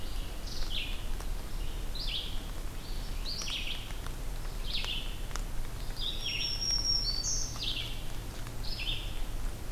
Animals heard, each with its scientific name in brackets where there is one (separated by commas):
Red-eyed Vireo (Vireo olivaceus), Black-throated Green Warbler (Setophaga virens)